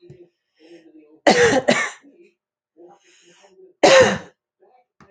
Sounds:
Cough